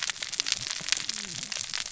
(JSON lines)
{"label": "biophony, cascading saw", "recorder": "SoundTrap 600 or HydroMoth"}